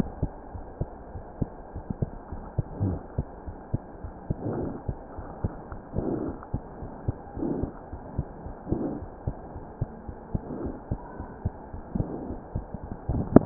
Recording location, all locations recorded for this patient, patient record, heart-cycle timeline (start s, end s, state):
pulmonary valve (PV)
aortic valve (AV)+pulmonary valve (PV)+tricuspid valve (TV)+mitral valve (MV)
#Age: Child
#Sex: Male
#Height: 82.0 cm
#Weight: 9.59 kg
#Pregnancy status: False
#Murmur: Absent
#Murmur locations: nan
#Most audible location: nan
#Systolic murmur timing: nan
#Systolic murmur shape: nan
#Systolic murmur grading: nan
#Systolic murmur pitch: nan
#Systolic murmur quality: nan
#Diastolic murmur timing: nan
#Diastolic murmur shape: nan
#Diastolic murmur grading: nan
#Diastolic murmur pitch: nan
#Diastolic murmur quality: nan
#Outcome: Abnormal
#Campaign: 2015 screening campaign
0.00	0.47	unannotated
0.47	0.65	S1
0.65	0.77	systole
0.77	0.88	S2
0.88	1.11	diastole
1.11	1.23	S1
1.23	1.37	systole
1.37	1.47	S2
1.47	1.73	diastole
1.73	1.83	S1
1.83	1.99	systole
1.99	2.08	S2
2.08	2.29	diastole
2.29	2.42	S1
2.42	2.53	systole
2.53	2.65	S2
2.65	3.42	unannotated
3.42	3.56	S1
3.56	3.69	systole
3.69	3.80	S2
3.80	4.00	diastole
4.00	4.11	S1
4.11	4.26	systole
4.26	4.36	S2
4.36	5.12	unannotated
5.12	5.25	S1
5.25	5.40	systole
5.40	5.53	S2
5.53	5.68	diastole
5.68	5.79	S1
5.79	6.76	unannotated
6.76	6.89	S1
6.89	7.03	systole
7.03	7.15	S2
7.15	7.34	diastole
7.34	7.45	S1
7.45	7.60	systole
7.60	7.71	S2
7.71	7.90	diastole
7.90	8.03	S1
8.03	8.16	systole
8.16	8.25	S2
8.25	8.43	diastole
8.43	8.55	S1
8.55	13.46	unannotated